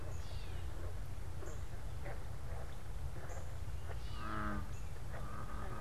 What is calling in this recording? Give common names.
Gray Catbird, unidentified bird